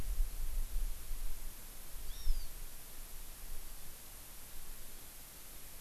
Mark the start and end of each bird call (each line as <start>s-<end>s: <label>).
2.1s-2.5s: Hawaii Amakihi (Chlorodrepanis virens)